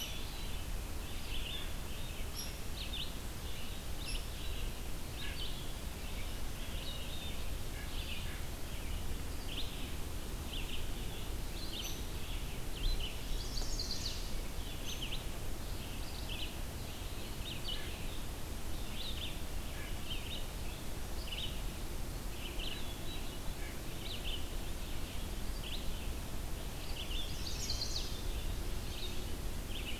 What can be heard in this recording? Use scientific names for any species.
Vireo olivaceus, Dryobates villosus, Sitta carolinensis, Setophaga pensylvanica